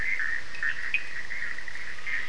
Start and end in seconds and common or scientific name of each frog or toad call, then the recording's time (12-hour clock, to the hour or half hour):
0.0	1.2	Cochran's lime tree frog
0.0	2.2	Bischoff's tree frog
0.0	2.2	Scinax perereca
~1am